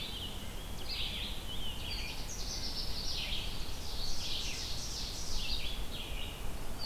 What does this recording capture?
Red-eyed Vireo, Canada Warbler, Ovenbird